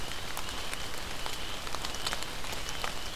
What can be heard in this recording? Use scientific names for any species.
unidentified call